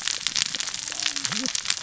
{"label": "biophony, cascading saw", "recorder": "SoundTrap 600 or HydroMoth"}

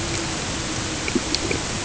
{"label": "ambient", "recorder": "HydroMoth"}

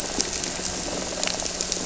{"label": "anthrophony, boat engine", "recorder": "SoundTrap 300"}
{"label": "biophony", "recorder": "SoundTrap 300"}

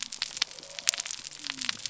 {"label": "biophony", "recorder": "SoundTrap 300"}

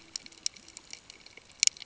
{"label": "ambient", "recorder": "HydroMoth"}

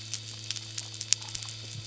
{"label": "anthrophony, boat engine", "recorder": "SoundTrap 300"}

